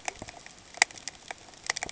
{"label": "ambient", "recorder": "HydroMoth"}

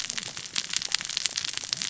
{"label": "biophony, cascading saw", "recorder": "SoundTrap 600 or HydroMoth"}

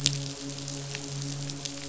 {"label": "biophony, midshipman", "recorder": "SoundTrap 500"}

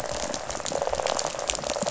{"label": "biophony, rattle", "recorder": "SoundTrap 500"}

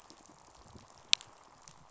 {"label": "biophony, pulse", "recorder": "SoundTrap 500"}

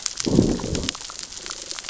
{"label": "biophony, growl", "recorder": "SoundTrap 600 or HydroMoth"}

